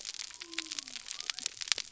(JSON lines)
{"label": "biophony", "recorder": "SoundTrap 300"}